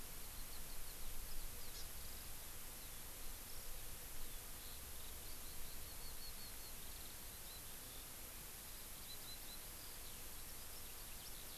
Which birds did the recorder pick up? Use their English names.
Eurasian Skylark, Hawaii Amakihi